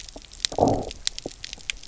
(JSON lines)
{"label": "biophony, low growl", "recorder": "SoundTrap 300"}